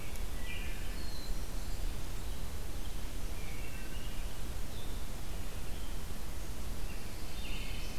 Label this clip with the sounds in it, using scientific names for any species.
Vireo olivaceus, Setophaga fusca, Hylocichla mustelina, Piranga olivacea, Setophaga pinus